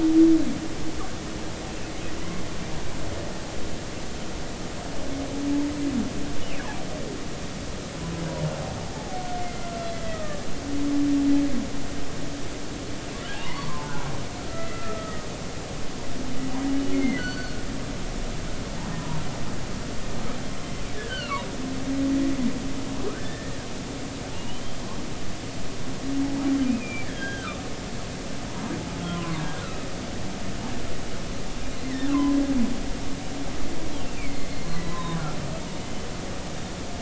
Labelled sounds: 8.9	9.7	humpback whale, 0.80 to 2.2 kHz
10.0	10.4	humpback whale, 1.1 to 2.0 kHz
13.4	15.3	humpback whale, 0.80 to 2.1 kHz
16.9	17.6	humpback whale, 1.4 to 4.6 kHz
18.9	19.2	humpback whale, 0.90 to 1.1 kHz
21.0	21.5	humpback whale, 0.90 to 3.2 kHz
23.2	23.6	humpback whale, 1.7 to 1.9 kHz
24.3	24.8	humpback whale, 2.7 to 3.2 kHz
26.6	27.6	humpback whale, 1.1 to 3.4 kHz
29.1	29.6	humpback whale, 0.96 to 1.7 kHz
31.8	32.4	humpback whale, 0.96 to 2.1 kHz
34.0	35.2	humpback whale, 0.96 to 4.3 kHz

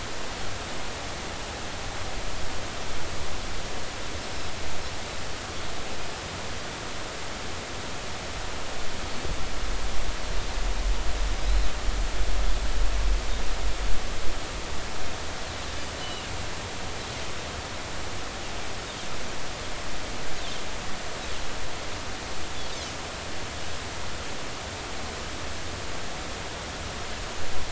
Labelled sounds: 11.5	11.7	Pacific white-sided dolphin, 3.8 to 4.2 kHz
16.0	16.3	Pacific white-sided dolphin, 2.7 to 3.1 kHz

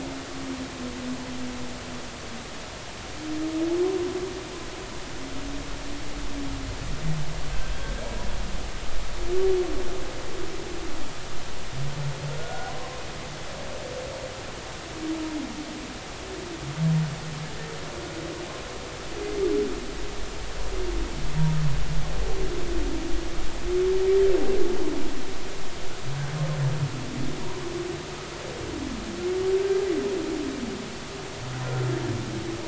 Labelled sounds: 7.7	8.0	humpback whale, 3.1 to 3.4 kHz
12.4	13.0	humpback whale, 0.93 to 1.5 kHz

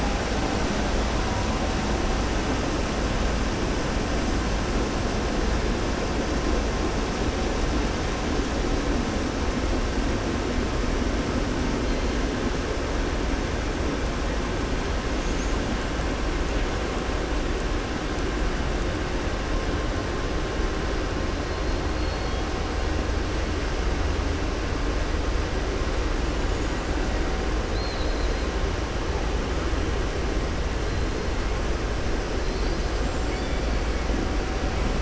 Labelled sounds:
27.6	28.4	killer whale, southern resident, 3.8 to 4.6 kHz

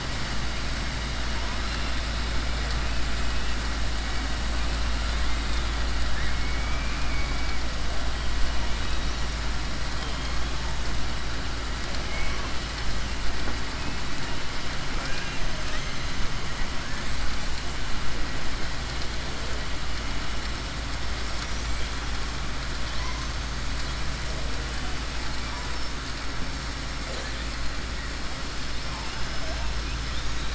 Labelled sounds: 6.1	7.5	killer whale, southern resident, 1.3 to 2.5 kHz
14.9	15.4	killer whale, southern resident, 0.53 to 3.8 kHz

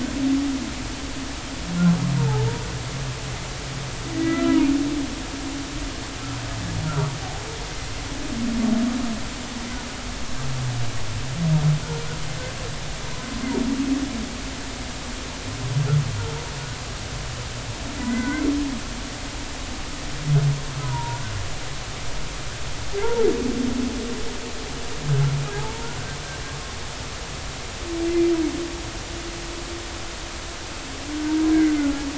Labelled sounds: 2.2	2.5	humpback whale, 0.80 to 0.99 kHz
4.1	4.6	humpback whale, 1.2 to 2.0 kHz
6.8	7.1	humpback whale, 1.2 to 1.5 kHz
18.0	18.5	humpback whale, 1.4 to 2.2 kHz
20.8	21.2	humpback whale, 0.90 to 1.1 kHz
22.9	23.3	humpback whale, 0.80 to 0.99 kHz
25.6	26.0	humpback whale, 0.80 to 0.99 kHz
31.5	31.9	humpback whale, 1.4 to 1.7 kHz

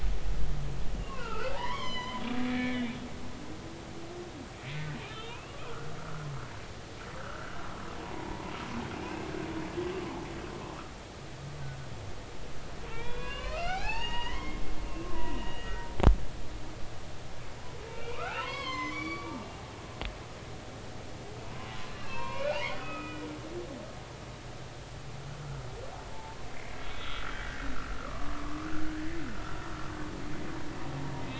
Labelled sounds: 1.0	2.9	humpback whale, 0.80 to 7.2 kHz
5.0	5.7	humpback whale, 0.90 to 3.7 kHz
7.2	8.5	humpback whale, 0.86 to 1.7 kHz
12.9	14.6	humpback whale, 0.80 to 6.8 kHz
15.0	15.9	humpback whale, 0.90 to 3.0 kHz
17.9	19.5	humpback whale, 0.90 to 6.4 kHz
21.9	23.2	humpback whale, 0.80 to 3.5 kHz
26.1	27.7	humpback whale, 0.83 to 3.5 kHz
28.0	29.3	humpback whale, 0.93 to 2.1 kHz

